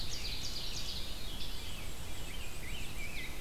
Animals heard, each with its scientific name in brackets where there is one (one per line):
Veery (Catharus fuscescens)
Rose-breasted Grosbeak (Pheucticus ludovicianus)
Ovenbird (Seiurus aurocapilla)
Red-eyed Vireo (Vireo olivaceus)
Scarlet Tanager (Piranga olivacea)
Black-and-white Warbler (Mniotilta varia)